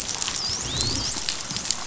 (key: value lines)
label: biophony, dolphin
recorder: SoundTrap 500